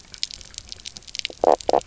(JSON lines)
{"label": "biophony, knock croak", "recorder": "SoundTrap 300"}